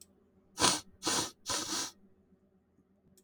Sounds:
Sniff